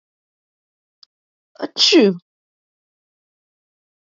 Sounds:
Sneeze